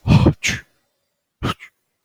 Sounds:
Sneeze